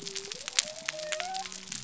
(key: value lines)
label: biophony
recorder: SoundTrap 300